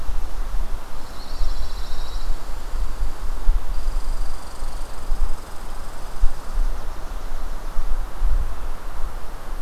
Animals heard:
Eastern Wood-Pewee (Contopus virens), Pine Warbler (Setophaga pinus), Red Squirrel (Tamiasciurus hudsonicus)

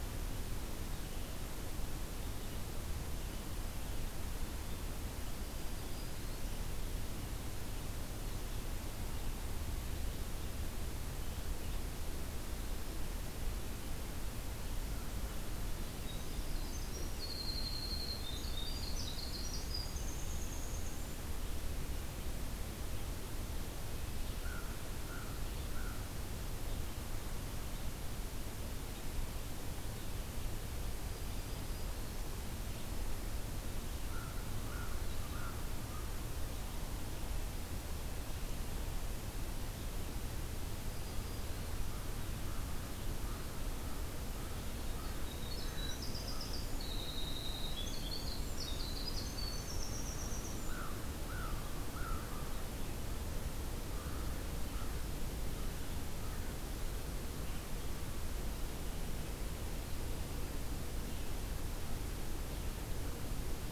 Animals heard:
Black-throated Green Warbler (Setophaga virens), American Crow (Corvus brachyrhynchos), Winter Wren (Troglodytes hiemalis)

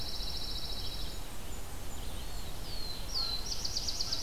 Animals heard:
Eastern Wood-Pewee (Contopus virens), Red-eyed Vireo (Vireo olivaceus), Blackburnian Warbler (Setophaga fusca), Pine Warbler (Setophaga pinus), Black-throated Blue Warbler (Setophaga caerulescens)

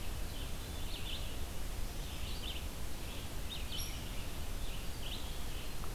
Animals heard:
Red-eyed Vireo (Vireo olivaceus), Hairy Woodpecker (Dryobates villosus)

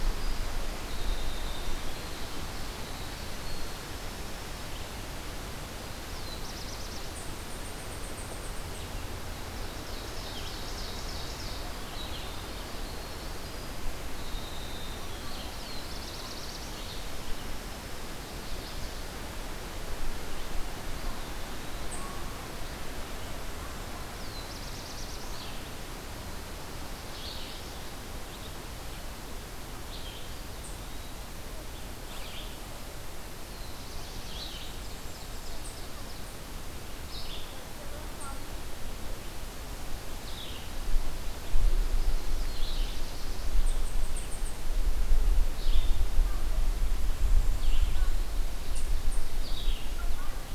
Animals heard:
Black-throated Blue Warbler (Setophaga caerulescens), Winter Wren (Troglodytes hiemalis), Eastern Wood-Pewee (Contopus virens), Ovenbird (Seiurus aurocapilla), Red-eyed Vireo (Vireo olivaceus)

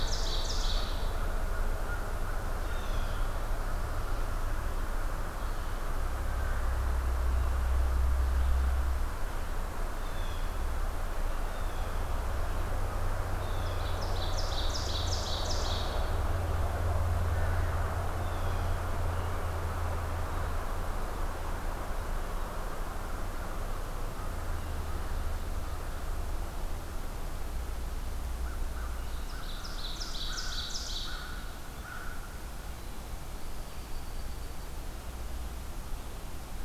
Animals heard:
Blue Jay (Cyanocitta cristata), unidentified call, Ovenbird (Seiurus aurocapilla), American Crow (Corvus brachyrhynchos)

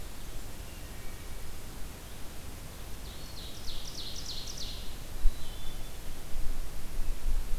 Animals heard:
Ovenbird (Seiurus aurocapilla), Wood Thrush (Hylocichla mustelina), Eastern Wood-Pewee (Contopus virens)

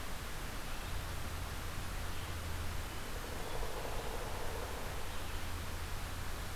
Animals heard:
Pileated Woodpecker (Dryocopus pileatus), Red-eyed Vireo (Vireo olivaceus)

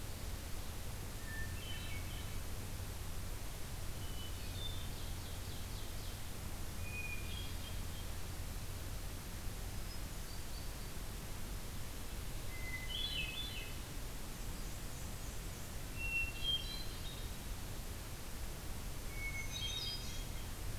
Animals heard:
Hermit Thrush (Catharus guttatus), Black-and-white Warbler (Mniotilta varia), Black-throated Green Warbler (Setophaga virens), Ovenbird (Seiurus aurocapilla)

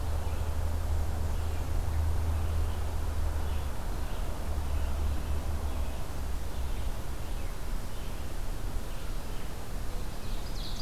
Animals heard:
Ovenbird (Seiurus aurocapilla), Black-and-white Warbler (Mniotilta varia), Red-eyed Vireo (Vireo olivaceus)

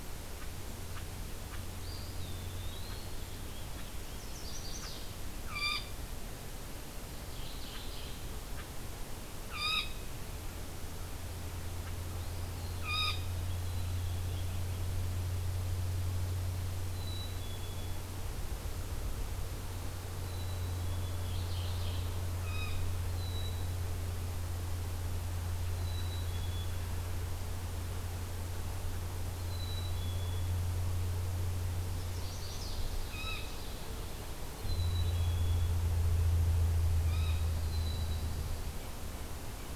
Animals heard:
Eastern Wood-Pewee (Contopus virens), Black-capped Chickadee (Poecile atricapillus), Mourning Warbler (Geothlypis philadelphia), Chestnut-sided Warbler (Setophaga pensylvanica), Blue Jay (Cyanocitta cristata)

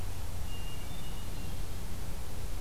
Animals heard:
Hermit Thrush (Catharus guttatus)

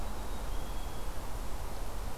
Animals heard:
Black-capped Chickadee (Poecile atricapillus)

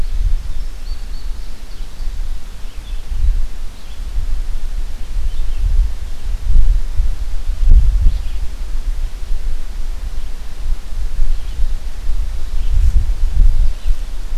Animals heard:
Indigo Bunting (Passerina cyanea), Red-eyed Vireo (Vireo olivaceus)

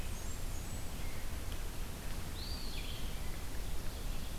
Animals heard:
Blackburnian Warbler (Setophaga fusca), Eastern Wood-Pewee (Contopus virens), Red-eyed Vireo (Vireo olivaceus)

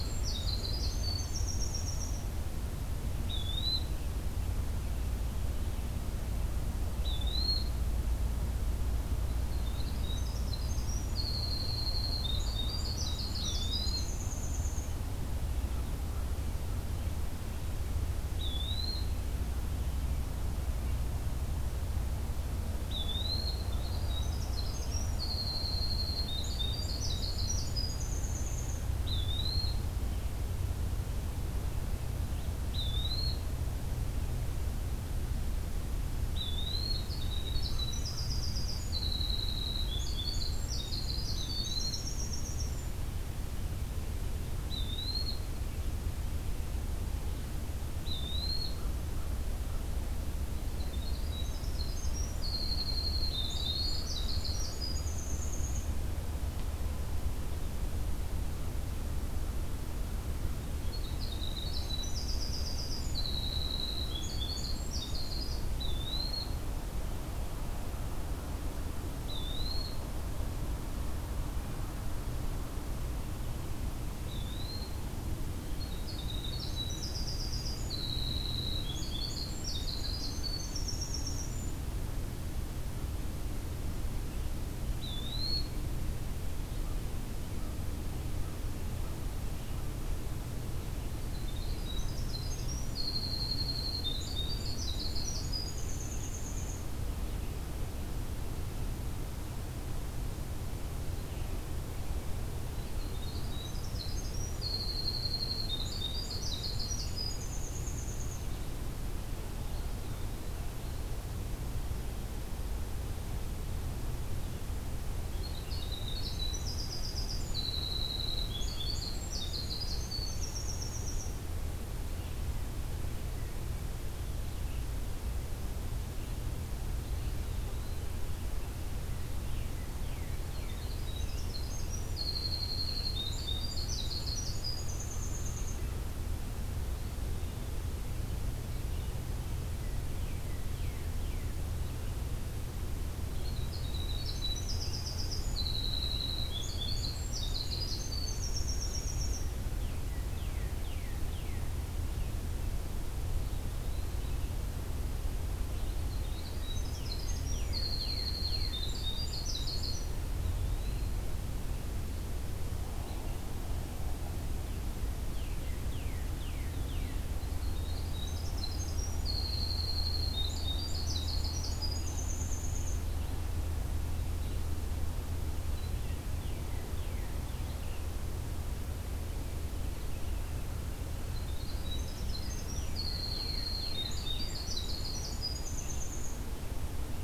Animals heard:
Eastern Wood-Pewee (Contopus virens), Northern Cardinal (Cardinalis cardinalis), Winter Wren (Troglodytes hiemalis)

